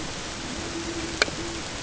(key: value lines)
label: ambient
recorder: HydroMoth